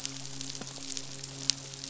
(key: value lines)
label: biophony, midshipman
recorder: SoundTrap 500